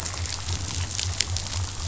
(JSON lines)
{"label": "biophony", "recorder": "SoundTrap 500"}